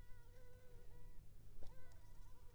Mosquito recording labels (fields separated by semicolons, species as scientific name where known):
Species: Anopheles arabiensis; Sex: female; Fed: unfed; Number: one; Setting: cup